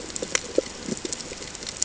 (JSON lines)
{"label": "ambient", "recorder": "HydroMoth"}